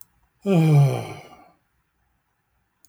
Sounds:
Sigh